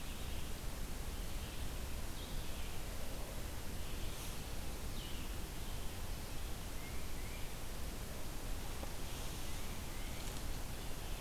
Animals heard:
Red-eyed Vireo (Vireo olivaceus), Tufted Titmouse (Baeolophus bicolor)

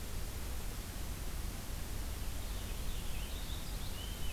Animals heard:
Purple Finch (Haemorhous purpureus)

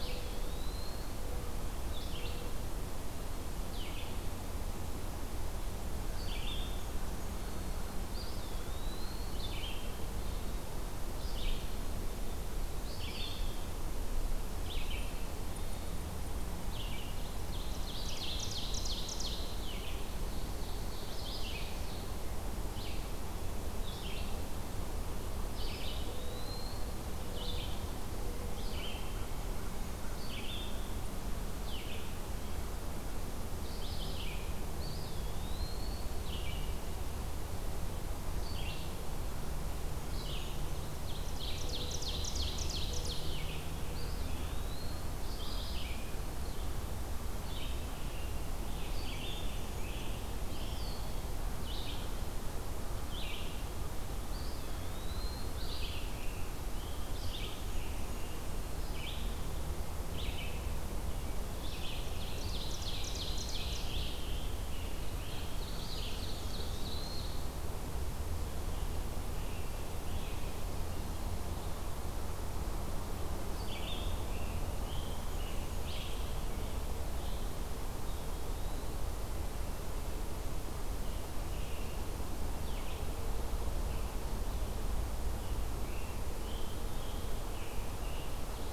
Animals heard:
Red-eyed Vireo (Vireo olivaceus), Scarlet Tanager (Piranga olivacea), Eastern Wood-Pewee (Contopus virens), Ovenbird (Seiurus aurocapilla)

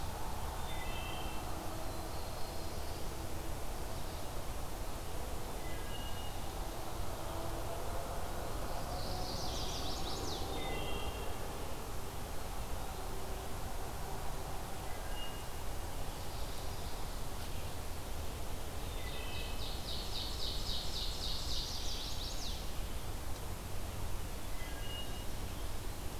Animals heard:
Ovenbird (Seiurus aurocapilla), Chestnut-sided Warbler (Setophaga pensylvanica), Wood Thrush (Hylocichla mustelina), Mourning Warbler (Geothlypis philadelphia), Black-throated Blue Warbler (Setophaga caerulescens)

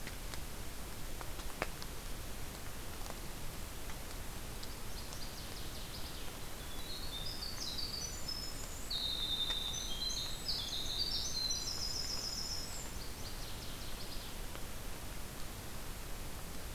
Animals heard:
Northern Waterthrush (Parkesia noveboracensis), Winter Wren (Troglodytes hiemalis)

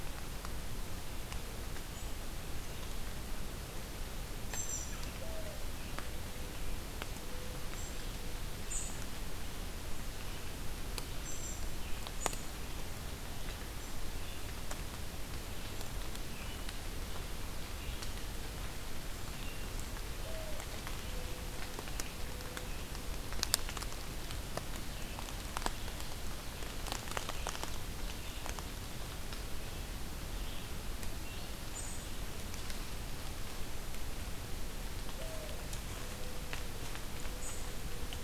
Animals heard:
American Robin (Turdus migratorius), Red-eyed Vireo (Vireo olivaceus), Mourning Dove (Zenaida macroura)

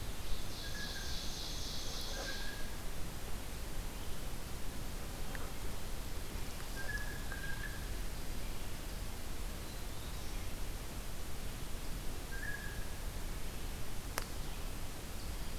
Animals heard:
Ovenbird (Seiurus aurocapilla), Blue Jay (Cyanocitta cristata), Black-throated Green Warbler (Setophaga virens)

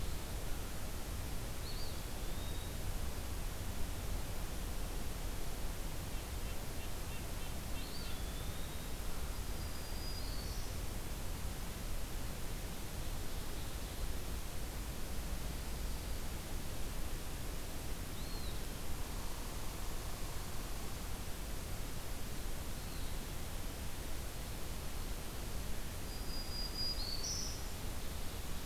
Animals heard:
Eastern Wood-Pewee (Contopus virens), Red-breasted Nuthatch (Sitta canadensis), Black-throated Green Warbler (Setophaga virens)

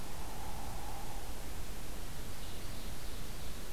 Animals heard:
Hairy Woodpecker (Dryobates villosus), Ovenbird (Seiurus aurocapilla)

